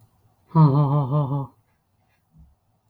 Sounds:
Laughter